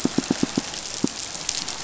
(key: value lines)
label: biophony, pulse
recorder: SoundTrap 500